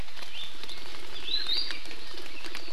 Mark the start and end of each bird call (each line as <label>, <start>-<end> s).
Iiwi (Drepanis coccinea), 0.2-0.5 s
Iiwi (Drepanis coccinea), 1.1-1.8 s